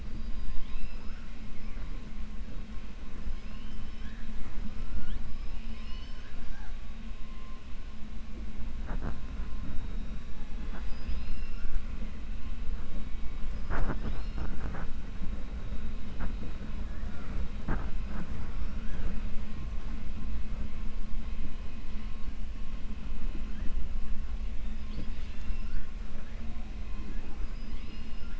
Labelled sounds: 0.0	1.3	killer whale, 0.92 to 5.4 kHz
5.3	6.7	killer whale, 1.5 to 6.4 kHz
10.6	11.7	killer whale, 0.61 to 5.4 kHz

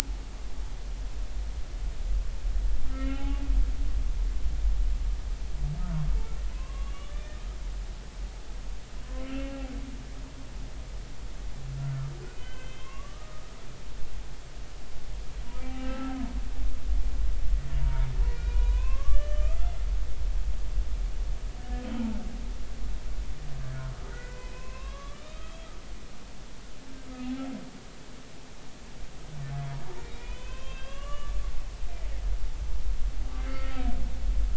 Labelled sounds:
2.9	3.4	humpback whale, 0.80 to 3.1 kHz
6.5	7.2	humpback whale, 0.99 to 3.5 kHz
9.2	9.7	humpback whale, 0.80 to 3.1 kHz
12.4	13.5	humpback whale, 0.99 to 3.3 kHz
15.7	16.2	humpback whale, 1.2 to 1.4 kHz
17.8	19.7	humpback whale, 0.86 to 6.0 kHz
24.1	25.7	humpback whale, 0.96 to 3.8 kHz
30.1	31.4	humpback whale, 0.99 to 3.8 kHz
33.4	33.8	humpback whale, 1.2 to 2.2 kHz

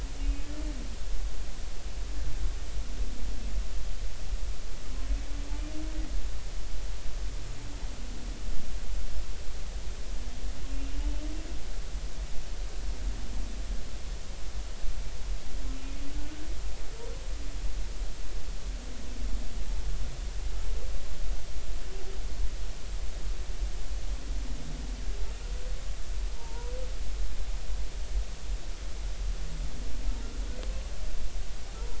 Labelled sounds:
0.2	0.5	humpback whale, 2.5 to 2.6 kHz
10.7	11.1	humpback whale, 2.7 to 2.9 kHz
16.1	16.4	humpback whale, 1.4 to 1.6 kHz
26.4	26.7	humpback whale, 0.86 to 1.0 kHz

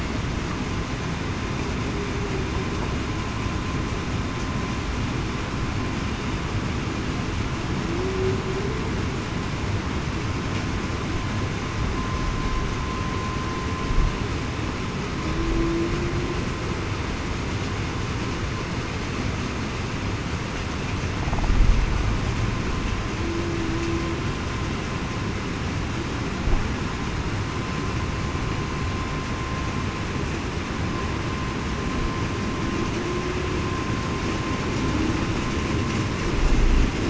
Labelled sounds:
7.9	8.4	humpback whale, 0.33 to 0.40 kHz
15.4	15.9	humpback whale, 0.30 to 0.38 kHz

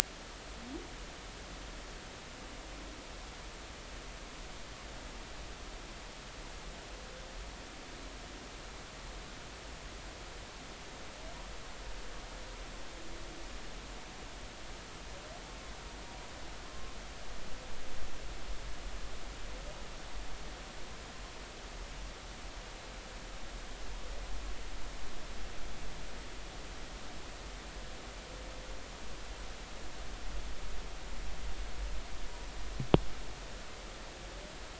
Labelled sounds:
16.6	17.0	humpback whale, 0.99 to 1.1 kHz

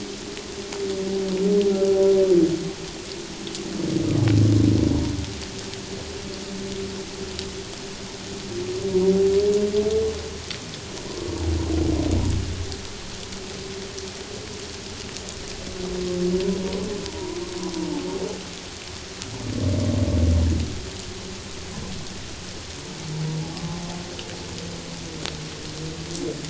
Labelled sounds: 11.1	11.4	humpback whale, 0.94 to 1.2 kHz

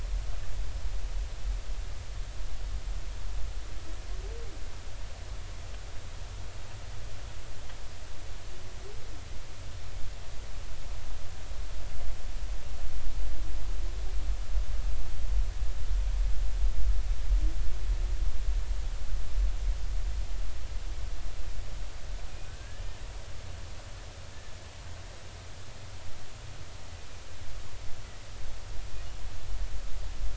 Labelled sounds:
22.5	22.8	humpback whale, 1.5 to 1.8 kHz

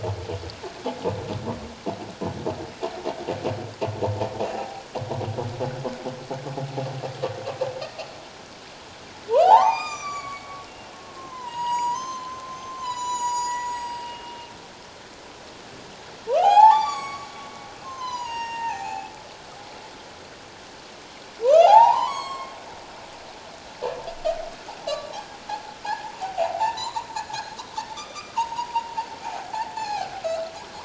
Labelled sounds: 4.4	4.8	humpback whale, 0.78 to 2.8 kHz
7.9	8.2	humpback whale, 4.2 to 4.6 kHz
9.3	14.4	humpback whale, 0.78 to 8.0 kHz
16.3	17.3	humpback whale, 0.78 to 8.0 kHz
17.8	19.1	humpback whale, 0.78 to 7.6 kHz
21.4	22.6	humpback whale, 0.78 to 8.0 kHz
24.9	25.8	humpback whale, 0.78 to 1.2 kHz
26.2	27.5	humpback whale, 0.78 to 7.2 kHz
27.9	28.9	humpback whale, 0.81 to 6.1 kHz
29.2	30.5	humpback whale, 0.78 to 4.5 kHz

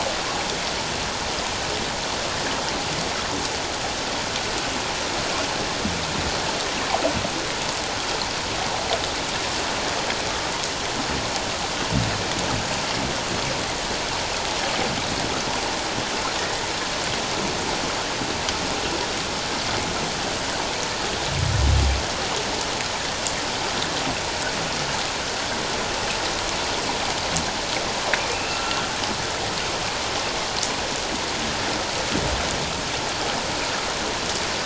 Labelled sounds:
28.3	28.8	humpback whale, 1.3 to 2.8 kHz

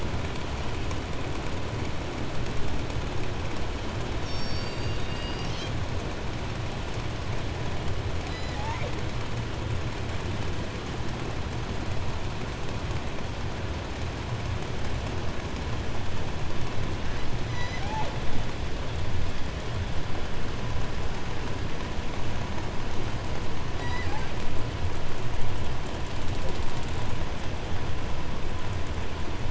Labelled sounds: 4.0	5.9	killer whale, southern resident, J pod, call S01, 1.8 to 8.0 kHz
8.1	9.1	killer whale, southern resident, J pod, call S01, 0.35 to 8.0 kHz
17.4	18.3	killer whale, southern resident, J pod, call S01, 0.22 to 8.0 kHz
23.7	24.5	killer whale, southern resident, J pod, call S01, 0.41 to 8.0 kHz

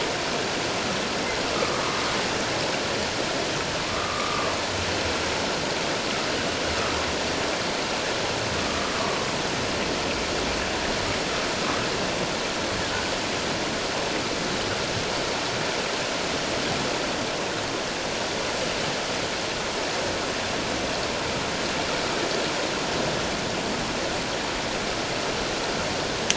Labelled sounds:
1.6	2.0	humpback whale, 0.94 to 1.3 kHz
3.9	4.5	humpback whale, 1.0 to 1.3 kHz
8.6	9.0	humpback whale, 1.1 to 1.3 kHz
12.9	13.1	humpback whale, 1.4 to 1.6 kHz

